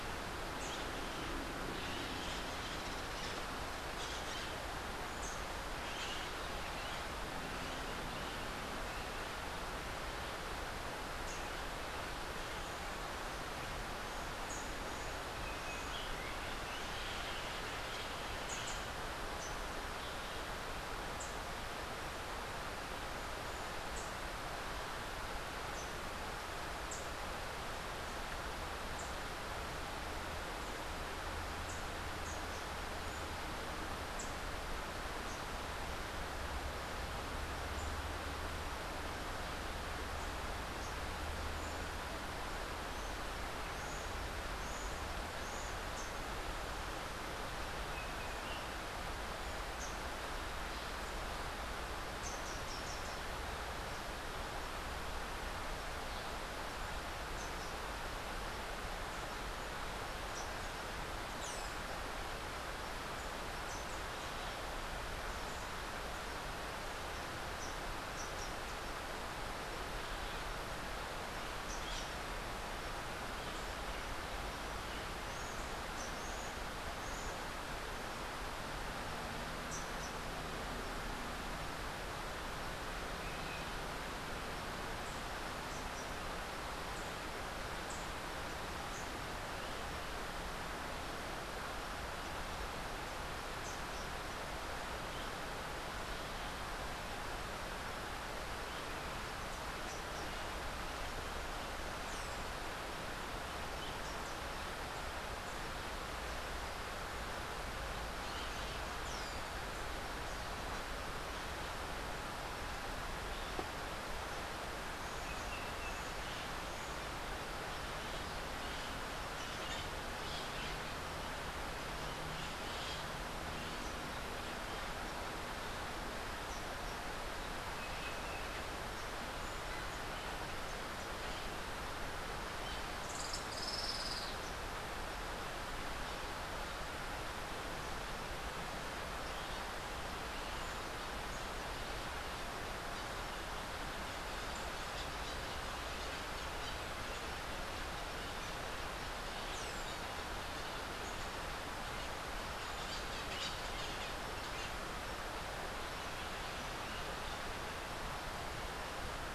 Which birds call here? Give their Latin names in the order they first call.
Psittacara finschi, Basileuterus rufifrons, Saltator maximus, Pachyramphus aglaiae, Amazilia tzacatl